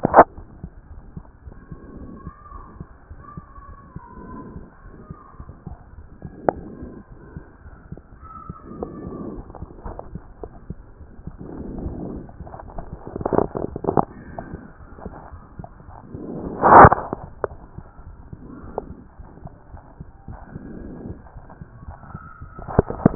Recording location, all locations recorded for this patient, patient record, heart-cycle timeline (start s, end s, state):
aortic valve (AV)
aortic valve (AV)+pulmonary valve (PV)+tricuspid valve (TV)+mitral valve (MV)
#Age: Child
#Sex: Male
#Height: nan
#Weight: nan
#Pregnancy status: False
#Murmur: Present
#Murmur locations: mitral valve (MV)+pulmonary valve (PV)+tricuspid valve (TV)
#Most audible location: mitral valve (MV)
#Systolic murmur timing: Holosystolic
#Systolic murmur shape: Plateau
#Systolic murmur grading: I/VI
#Systolic murmur pitch: Low
#Systolic murmur quality: Blowing
#Diastolic murmur timing: nan
#Diastolic murmur shape: nan
#Diastolic murmur grading: nan
#Diastolic murmur pitch: nan
#Diastolic murmur quality: nan
#Outcome: Normal
#Campaign: 2014 screening campaign
0.00	0.12	systole
0.12	0.22	S2
0.22	0.24	diastole
0.24	0.26	S1
0.26	0.38	systole
0.38	0.46	S2
0.46	0.64	diastole
0.64	0.72	S1
0.72	0.90	systole
0.90	1.00	S2
1.00	1.16	diastole
1.16	1.26	S1
1.26	1.44	systole
1.44	1.54	S2
1.54	1.98	diastole
1.98	2.12	S1
2.12	2.24	systole
2.24	2.32	S2
2.32	2.52	diastole
2.52	2.64	S1
2.64	2.78	systole
2.78	2.88	S2
2.88	3.10	diastole
3.10	3.20	S1
3.20	3.36	systole
3.36	3.44	S2
3.44	3.68	diastole
3.68	3.76	S1
3.76	3.92	systole
3.92	4.00	S2
4.00	4.24	diastole
4.24	4.38	S1
4.38	4.54	systole
4.54	4.64	S2
4.64	4.86	diastole
4.86	4.94	S1
4.94	5.10	systole
5.10	5.18	S2
5.18	5.40	diastole
5.40	5.50	S1
5.50	5.66	systole
5.66	5.78	S2
5.78	6.06	diastole
6.06	6.08	S1
6.08	6.24	systole
6.24	6.30	S2
6.30	6.52	diastole
6.52	6.64	S1
6.64	6.80	systole
6.80	6.92	S2
6.92	7.34	diastole
7.34	7.44	S1
7.44	7.64	systole
7.64	7.74	S2
7.74	7.92	diastole
7.92	8.02	S1
8.02	8.18	systole
8.18	8.28	S2
8.28	8.52	diastole
8.52	8.56	S1
8.56	8.72	systole
8.72	8.82	S2
8.82	9.32	diastole
9.32	9.42	S1
9.42	9.58	systole
9.58	9.64	S2
9.64	9.86	diastole
9.86	9.98	S1
9.98	10.12	systole
10.12	10.22	S2
10.22	10.42	diastole
10.42	10.52	S1
10.52	10.68	systole
10.68	10.78	S2
10.78	11.06	diastole
11.06	11.08	S1
11.08	11.26	systole
11.26	11.32	S2
11.32	11.72	diastole
11.72	11.78	S1
11.78	11.80	systole
11.80	11.88	S2
11.88	11.94	diastole
11.94	11.96	S1
11.96	12.08	systole
12.08	12.24	S2
12.24	12.40	diastole
12.40	12.52	S1
12.52	12.74	systole
12.74	12.82	S2
12.82	13.18	diastole
13.18	13.28	S1
13.28	13.38	systole
13.38	13.42	S2
13.42	13.44	diastole
13.44	13.46	S1
13.46	13.58	systole
13.58	13.64	S2
13.64	13.88	diastole
13.88	13.94	S1
13.94	13.96	systole
13.96	14.06	S2
14.06	14.42	diastole
14.42	14.44	S1
14.44	14.52	systole
14.52	14.62	S2
14.62	15.04	diastole
15.04	15.16	S1
15.16	15.32	systole
15.32	15.42	S2
15.42	15.60	diastole
15.60	15.68	S1
15.68	15.84	systole
15.84	15.96	S2
15.96	16.50	diastole
16.50	16.54	S1
16.54	16.60	systole
16.60	16.78	S2
16.78	16.80	diastole
16.80	16.88	S1
16.88	16.90	systole
16.90	17.02	S2
17.02	17.44	diastole
17.44	17.56	S1
17.56	17.76	systole
17.76	17.84	S2
17.84	18.06	diastole
18.06	18.16	S1
18.16	18.32	systole
18.32	18.38	S2
18.38	18.64	diastole
18.64	18.74	S1
18.74	18.90	systole
18.90	19.00	S2
19.00	19.20	diastole
19.20	19.28	S1
19.28	19.42	systole
19.42	19.52	S2
19.52	19.72	diastole
19.72	19.82	S1
19.82	19.98	systole
19.98	20.08	S2
20.08	20.30	diastole
20.30	20.40	S1
20.40	20.54	systole
20.54	20.62	S2
20.62	21.04	diastole
21.04	21.18	S1
21.18	21.34	systole
21.34	21.40	S2
21.40	21.44	diastole
21.44	21.46	S1
21.46	21.60	systole
21.60	21.64	S2
21.64	21.86	diastole
21.86	21.98	S1
21.98	22.12	systole
22.12	22.22	S2
22.22	23.00	diastole
23.00	23.15	S1